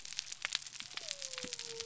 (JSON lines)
{"label": "biophony", "recorder": "SoundTrap 300"}